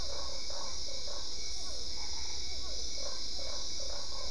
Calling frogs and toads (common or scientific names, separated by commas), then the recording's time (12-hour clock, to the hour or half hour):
Usina tree frog, Physalaemus cuvieri, Boana albopunctata
10pm